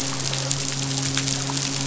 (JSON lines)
{"label": "biophony, midshipman", "recorder": "SoundTrap 500"}